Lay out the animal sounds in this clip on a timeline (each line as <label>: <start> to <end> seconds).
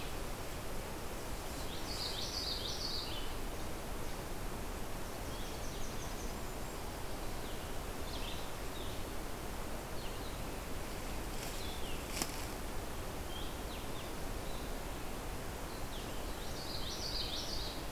Common Yellowthroat (Geothlypis trichas): 1.6 to 3.2 seconds
Yellow-rumped Warbler (Setophaga coronata): 4.6 to 6.4 seconds
Golden-crowned Kinglet (Regulus satrapa): 6.0 to 7.0 seconds
Red-eyed Vireo (Vireo olivaceus): 7.3 to 16.7 seconds
Common Yellowthroat (Geothlypis trichas): 16.3 to 17.9 seconds